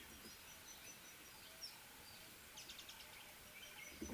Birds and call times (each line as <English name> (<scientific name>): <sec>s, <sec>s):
Speckled Mousebird (Colius striatus): 2.7s